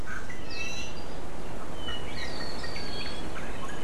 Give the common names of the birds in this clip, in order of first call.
Iiwi